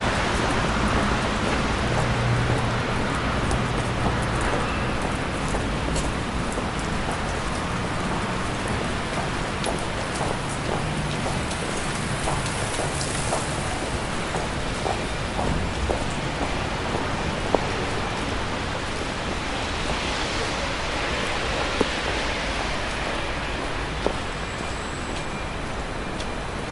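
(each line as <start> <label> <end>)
0.0 A silent thumping sound steadily repeats. 17.7
0.0 A steady rumbling sound plays repeatedly. 26.7
19.8 Steady, silent thumping sounds. 26.7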